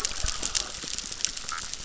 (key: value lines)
label: biophony
recorder: SoundTrap 600